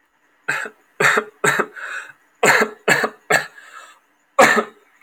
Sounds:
Cough